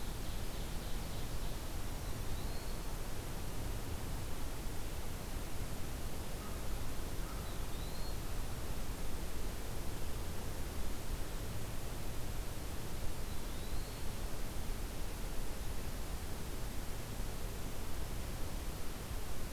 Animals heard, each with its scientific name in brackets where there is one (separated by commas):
American Crow (Corvus brachyrhynchos), Eastern Wood-Pewee (Contopus virens), Ovenbird (Seiurus aurocapilla)